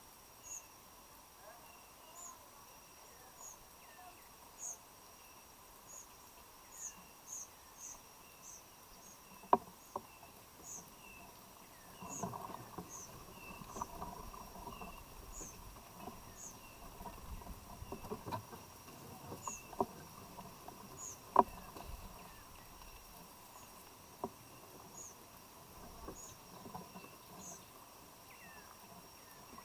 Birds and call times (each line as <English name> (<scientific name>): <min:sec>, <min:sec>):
Kikuyu White-eye (Zosterops kikuyuensis): 0:01.4, 0:14.5
White-eyed Slaty-Flycatcher (Melaenornis fischeri): 0:04.4, 0:15.2
African Emerald Cuckoo (Chrysococcyx cupreus): 0:28.3